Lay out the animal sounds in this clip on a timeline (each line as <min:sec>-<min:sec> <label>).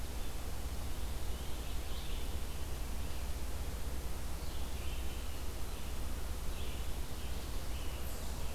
0:00.0-0:08.5 Red-eyed Vireo (Vireo olivaceus)
0:07.9-0:08.5 Eastern Chipmunk (Tamias striatus)